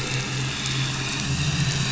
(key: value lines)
label: anthrophony, boat engine
recorder: SoundTrap 500